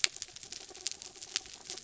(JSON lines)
{"label": "anthrophony, mechanical", "recorder": "SoundTrap 300"}